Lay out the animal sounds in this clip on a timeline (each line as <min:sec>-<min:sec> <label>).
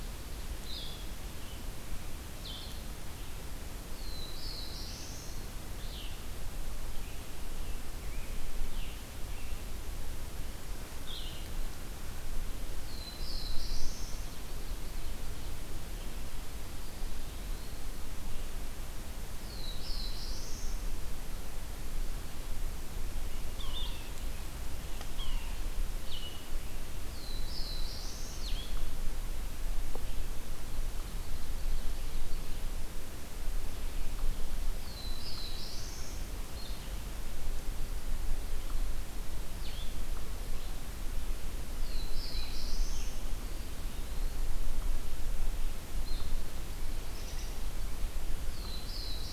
0:00.6-0:11.5 Red-eyed Vireo (Vireo olivaceus)
0:03.3-0:05.8 Black-throated Blue Warbler (Setophaga caerulescens)
0:06.8-0:09.7 Scarlet Tanager (Piranga olivacea)
0:12.3-0:14.7 Black-throated Blue Warbler (Setophaga caerulescens)
0:16.7-0:17.9 Eastern Wood-Pewee (Contopus virens)
0:19.0-0:21.5 Black-throated Blue Warbler (Setophaga caerulescens)
0:23.5-0:24.2 Yellow-bellied Sapsucker (Sphyrapicus varius)
0:23.7-0:49.3 Blue-headed Vireo (Vireo solitarius)
0:24.9-0:25.8 Yellow-bellied Sapsucker (Sphyrapicus varius)
0:26.4-0:28.8 Black-throated Blue Warbler (Setophaga caerulescens)
0:30.8-0:33.1 Ovenbird (Seiurus aurocapilla)
0:34.2-0:36.6 Black-throated Blue Warbler (Setophaga caerulescens)
0:41.2-0:43.7 Black-throated Blue Warbler (Setophaga caerulescens)
0:47.9-0:49.3 Black-throated Blue Warbler (Setophaga caerulescens)